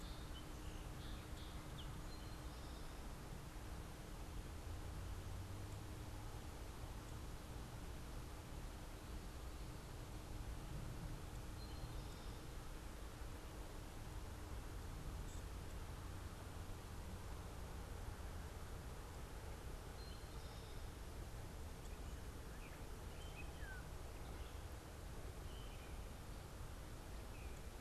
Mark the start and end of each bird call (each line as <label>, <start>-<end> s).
Song Sparrow (Melospiza melodia), 0.0-2.4 s
Eastern Towhee (Pipilo erythrophthalmus), 2.0-2.9 s
Eastern Towhee (Pipilo erythrophthalmus), 11.3-12.6 s
Gray Catbird (Dumetella carolinensis), 23.1-24.1 s